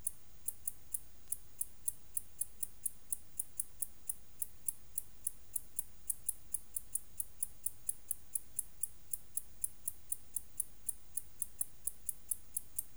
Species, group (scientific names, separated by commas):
Decticus albifrons, Orthoptera